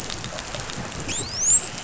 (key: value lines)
label: biophony, dolphin
recorder: SoundTrap 500